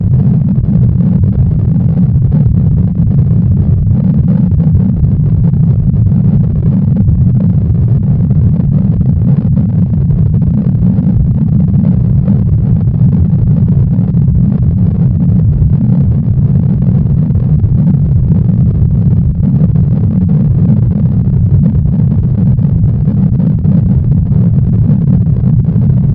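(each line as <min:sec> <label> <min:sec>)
0:00.1 Wind and engine noises of a flight. 0:26.1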